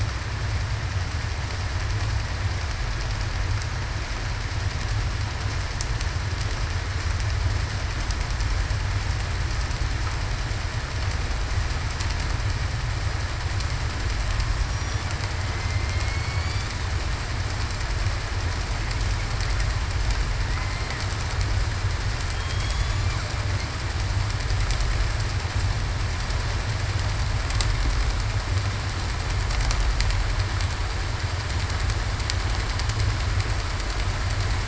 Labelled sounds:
14.6	15.0	killer whale, southern resident, 5.6 to 5.8 kHz
15.5	16.7	killer whale, southern resident, 2.0 to 4.7 kHz
20.5	20.9	killer whale, southern resident, 1.9 to 2.1 kHz
22.3	23.1	killer whale, southern resident, 3.2 to 3.5 kHz

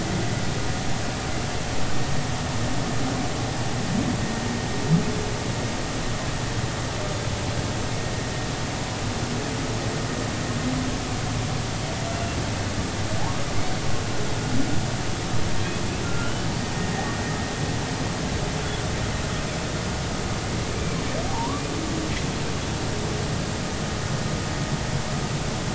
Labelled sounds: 12.1	12.4	humpback whale, 2.6 to 2.8 kHz
16.0	16.5	humpback whale, 1.3 to 1.5 kHz
21.3	21.6	humpback whale, 0.80 to 1.2 kHz

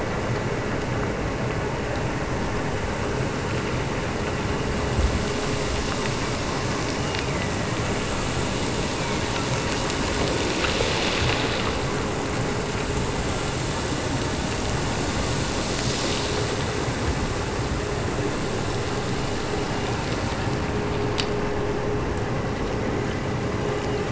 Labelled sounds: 6.9	7.9	killer whale, Bigg's (transient), Gulf of Alaska transient, 1.7 to 2.9 kHz
8.5	9.5	killer whale, Bigg's (transient), Gulf of Alaska transient, 1.7 to 3.0 kHz

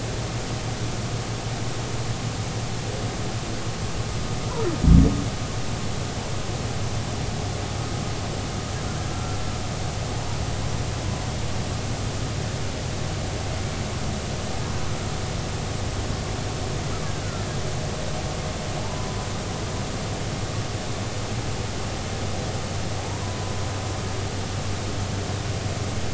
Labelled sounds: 9.1	9.4	killer whale, Bigg's (transient), 1.3 to 1.4 kHz
18.8	19.3	humpback whale, 0.83 to 1.1 kHz

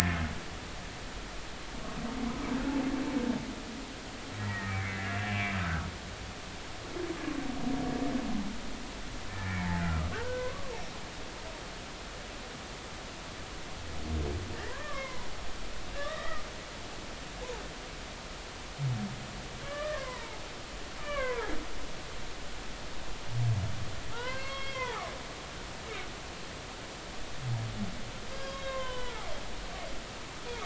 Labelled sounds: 4.4	5.9	humpback whale, 1.2 to 2.4 kHz
9.3	9.7	humpback whale, 1.6 to 2.4 kHz
10.1	10.7	humpback whale, 0.86 to 1.7 kHz
14.7	16.4	humpback whale, 0.93 to 2.2 kHz
19.6	20.4	humpback whale, 0.80 to 2.5 kHz
21.0	21.5	humpback whale, 0.80 to 2.4 kHz
24.1	25.1	humpback whale, 0.80 to 4.4 kHz
28.3	29.3	humpback whale, 0.90 to 4.9 kHz

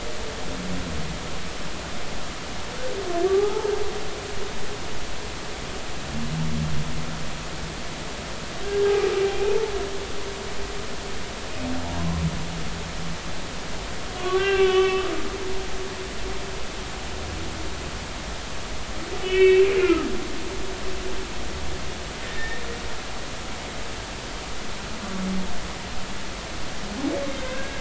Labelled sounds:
3.3	3.7	humpback whale, 0.80 to 1.4 kHz
9.3	9.7	humpback whale, 0.80 to 2.6 kHz
11.9	12.2	humpback whale, 0.93 to 1.1 kHz
14.2	15.8	humpback whale, 0.99 to 3.5 kHz
19.2	20.1	humpback whale, 1.2 to 3.1 kHz
22.2	22.6	humpback whale, 1.7 to 1.9 kHz
27.4	27.7	humpback whale, 1.5 to 1.7 kHz

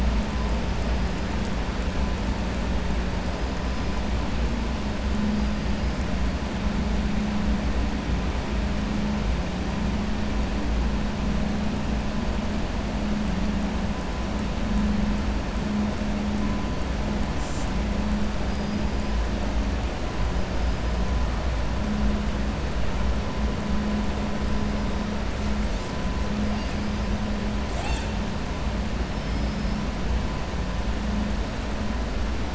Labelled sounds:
29.1	29.8	killer whale, southern resident, 4.3 to 5.5 kHz

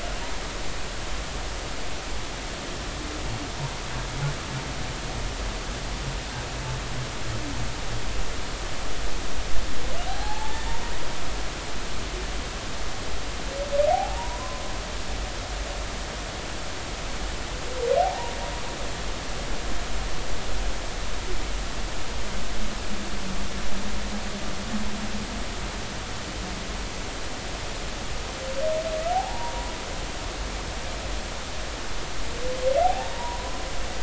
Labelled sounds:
10.1	10.6	humpback whale, 0.80 to 0.99 kHz
13.9	14.6	humpback whale, 0.80 to 1.1 kHz
18.0	18.3	humpback whale, 0.80 to 0.99 kHz
29.1	29.7	humpback whale, 0.80 to 1.0 kHz
32.8	33.6	humpback whale, 0.80 to 1.1 kHz

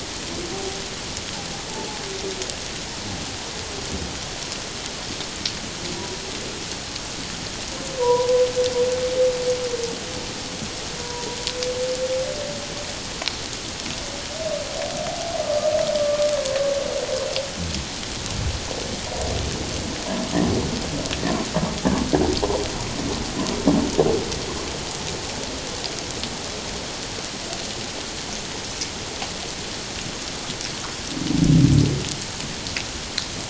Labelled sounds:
8.0	8.3	humpback whale, 0.91 to 1.1 kHz
11.0	11.4	humpback whale, 0.91 to 1.0 kHz
16.0	16.3	humpback whale, 1.1 to 1.2 kHz

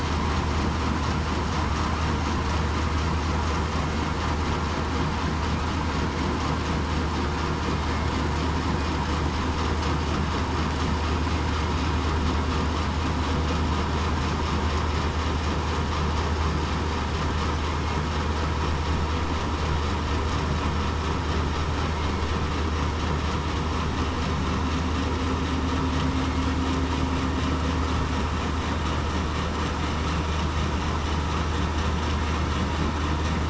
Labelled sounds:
26.1	26.4	killer whale, southern resident, 2.1 to 2.2 kHz
32.1	32.5	killer whale, southern resident, 2.1 to 2.2 kHz

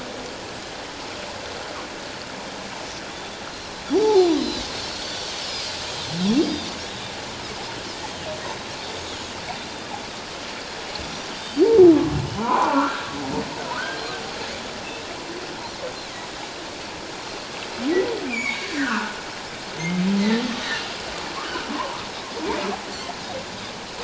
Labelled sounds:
3.9	4.3	humpback whale, 0.78 to 0.97 kHz
4.2	4.5	Pacific white-sided dolphin, 3.8 to 4.0 kHz
5.4	5.8	Pacific white-sided dolphin, 4.7 to 5.3 kHz
12.4	13.0	humpback whale, 0.78 to 1.7 kHz
13.6	14.0	humpback whale, 1.2 to 1.7 kHz
18.3	19.2	humpback whale, 0.84 to 7.1 kHz
20.2	20.4	humpback whale, 1.7 to 2.1 kHz
21.7	22.0	humpback whale, 0.88 to 1.2 kHz

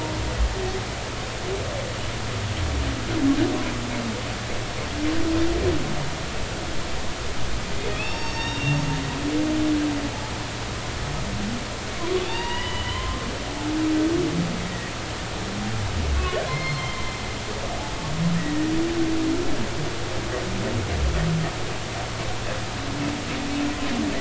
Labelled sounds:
7.9	8.8	humpback whale, 2.3 to 6.6 kHz
12.2	13.3	humpback whale, 0.86 to 5.1 kHz
16.2	17.2	humpback whale, 0.99 to 4.3 kHz
18.4	18.7	humpback whale, 1.8 to 2.0 kHz

